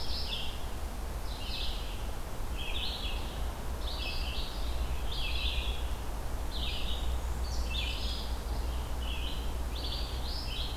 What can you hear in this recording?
Red-eyed Vireo, Black-and-white Warbler